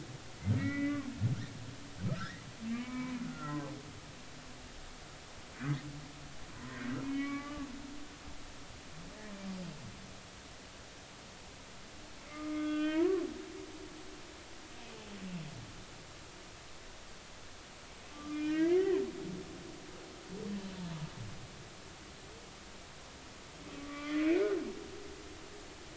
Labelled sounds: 0.6	1.0	humpback whale, 1.2 to 2.4 kHz
2.1	3.6	humpback whale, 0.90 to 2.3 kHz
6.6	7.7	humpback whale, 1.1 to 3.1 kHz
12.3	13.2	humpback whale, 0.90 to 3.5 kHz
18.1	18.8	humpback whale, 1.1 to 5.3 kHz
23.7	24.5	humpback whale, 1.1 to 2.6 kHz

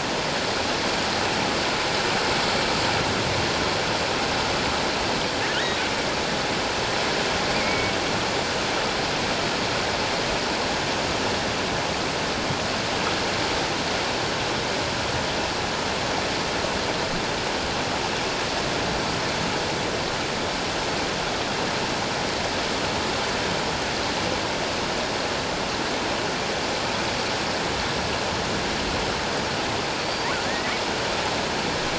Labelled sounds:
7.5	7.9	killer whale, offshore, 2.1 to 2.5 kHz
30.4	30.7	killer whale, offshore, 1.6 to 2.0 kHz

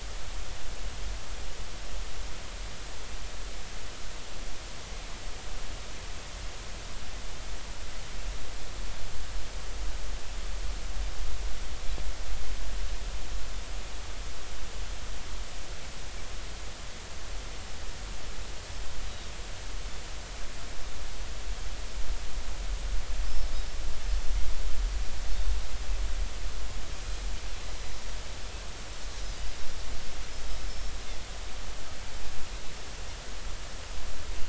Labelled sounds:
30.6	30.9	Pacific white-sided dolphin, 5.2 to 5.5 kHz

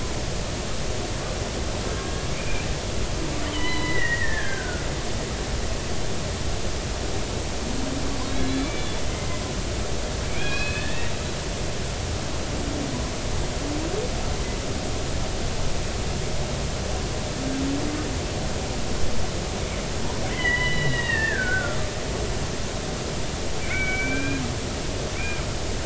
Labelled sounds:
1.9	2.7	killer whale, Bigg's (transient), 1.6 to 2.5 kHz
3.4	4.9	killer whale, Bigg's (transient), 0.93 to 4.1 kHz
8.3	9.0	killer whale, Bigg's (transient), 2.3 to 4.1 kHz
10.3	11.1	killer whale, Bigg's (transient), 1.5 to 4.1 kHz
20.3	21.8	killer whale, Bigg's (transient), 1.3 to 3.9 kHz
23.6	25.4	killer whale, Bigg's (transient), 1.4 to 2.5 kHz

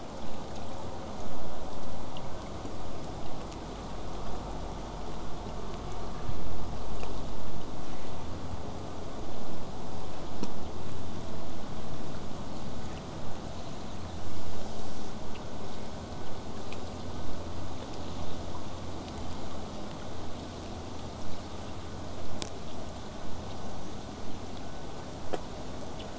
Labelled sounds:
13.4	14.3	killer whale, southern resident, call S10, 2.5 to 7.1 kHz
21.2	26.1	vessel noise, 0 to 8.0 kHz

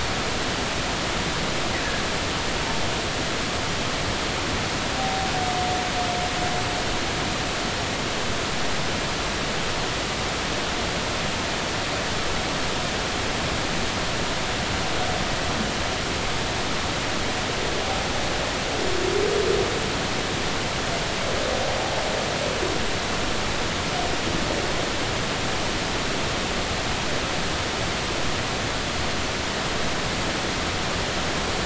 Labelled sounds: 5.0	5.3	humpback whale, 0.80 to 0.83 kHz

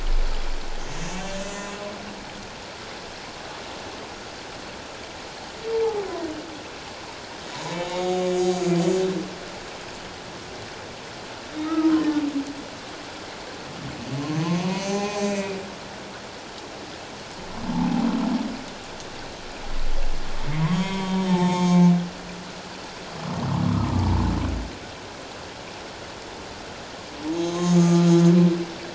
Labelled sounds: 0.8	1.7	humpback whale, 2.0 to 7.3 kHz
7.5	9.0	humpback whale, 0.81 to 7.0 kHz
11.6	12.1	humpback whale, 0.91 to 1.4 kHz
14.7	15.6	humpback whale, 0.78 to 6.5 kHz
20.5	21.9	humpback whale, 0.81 to 6.7 kHz
23.7	24.1	humpback whale, 1.1 to 1.3 kHz
27.3	28.1	humpback whale, 1.2 to 6.4 kHz

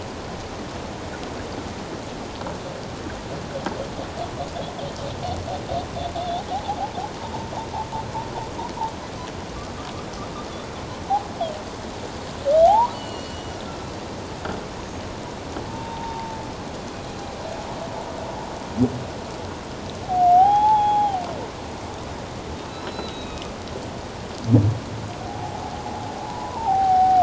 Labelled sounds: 6.2	6.8	humpback whale, 0.78 to 3.7 kHz
12.7	13.6	humpback whale, 0.78 to 5.9 kHz
15.7	16.4	humpback whale, 0.81 to 0.97 kHz
20.1	21.2	humpback whale, 0.78 to 3.5 kHz
22.7	23.5	humpback whale, 2.4 to 4.1 kHz
25.2	25.6	humpback whale, 0.78 to 0.91 kHz
26.2	27.2	humpback whale, 0.78 to 1.1 kHz

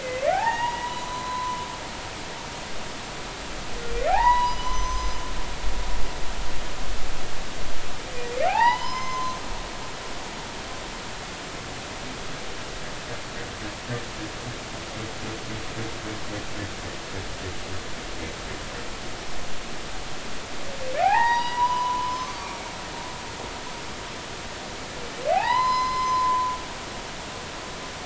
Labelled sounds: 0.0	2.1	humpback whale, 0.80 to 4.0 kHz
4.1	5.2	humpback whale, 0.80 to 6.2 kHz
8.5	10.4	humpback whale, 0.80 to 6.2 kHz
21.0	22.6	humpback whale, 0.80 to 5.2 kHz
25.3	27.1	humpback whale, 0.80 to 5.2 kHz

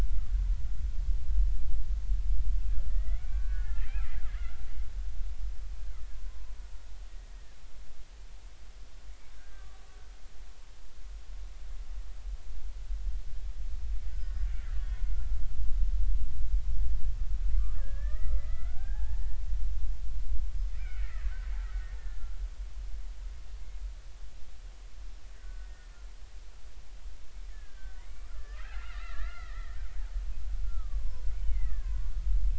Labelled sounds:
2.9	3.9	killer whale, Bigg's (transient), 1.1 to 2.5 kHz
6.3	6.5	killer whale, Bigg's (transient), 0.96 to 1.1 kHz
9.4	9.8	killer whale, Bigg's (transient), 1.1 to 1.7 kHz
14.0	15.4	killer whale, Bigg's (transient), 1.2 to 5.1 kHz
17.5	19.4	killer whale, Bigg's (transient), 0.80 to 2.2 kHz
20.7	21.3	killer whale, Bigg's (transient), 1.2 to 3.1 kHz
22.0	22.3	killer whale, Bigg's (transient), 1.7 to 1.8 kHz
25.3	26.0	killer whale, Bigg's (transient), 1.4 to 1.9 kHz
27.5	29.8	killer whale, Bigg's (transient), 1.1 to 3.0 kHz
30.6	32.2	killer whale, Bigg's (transient), 0.93 to 2.3 kHz

